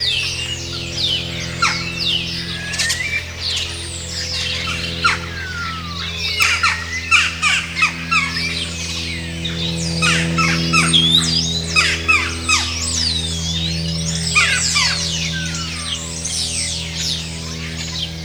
Is there a constant buzzing noise in the background?
yes